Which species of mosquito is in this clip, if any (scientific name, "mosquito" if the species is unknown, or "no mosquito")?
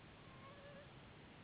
Anopheles gambiae s.s.